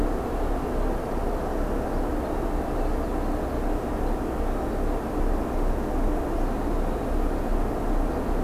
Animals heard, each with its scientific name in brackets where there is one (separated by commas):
Common Yellowthroat (Geothlypis trichas)